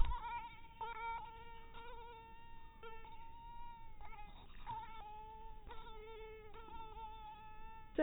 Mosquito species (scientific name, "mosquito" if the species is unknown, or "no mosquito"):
mosquito